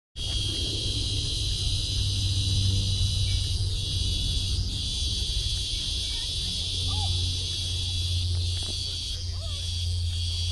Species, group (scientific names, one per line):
Psaltoda plaga
Cicadidae